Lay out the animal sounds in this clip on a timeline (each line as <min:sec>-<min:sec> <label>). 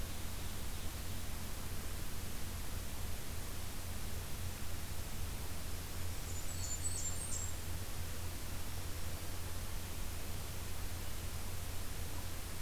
0:05.9-0:07.3 Black-throated Green Warbler (Setophaga virens)
0:06.0-0:07.6 Blackburnian Warbler (Setophaga fusca)